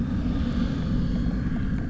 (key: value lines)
label: anthrophony, boat engine
recorder: SoundTrap 300